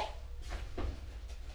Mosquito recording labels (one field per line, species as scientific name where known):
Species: Culex quinquefasciatus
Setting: cup